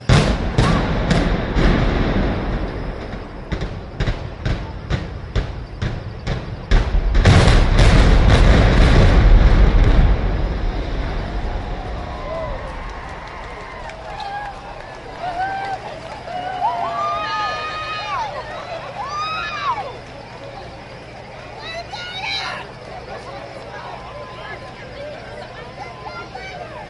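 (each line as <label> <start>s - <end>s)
A loud bomb explosion repeats four times with an echo, followed by a rapid, machine-gun-like firecracker sound, and then both sounds combine to create an intense, overlapping burst. 0.0s - 10.2s
A sequence of sounds progresses from single loud bursts to rapid cracking, blending together in a chaotic and dynamic rhythm. 0.0s - 10.2s
Fireworks explode in different patterns while crickets chirp in the background. 0.0s - 10.2s
Fireworks explode in the sky while crickets chirp in the distance at night. 0.0s - 10.2s
A car is driving after fireworks have ended. 10.2s - 11.8s
The car engine produces a steady hum or light revving sound. 10.2s - 11.8s
The sound remains consistent with slight variations as the car moves or idles. 10.2s - 11.8s
Continuous noise with bursts of louder cheering and clapping at certain moments. 11.8s - 26.9s
Loud, energetic, and overlapping sounds create a lively atmosphere. 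11.8s - 26.9s
People celebrating with clapping, cheering, and excited screams. 11.8s - 26.9s
People cheering loudly at a festive or celebratory event. 11.8s - 26.9s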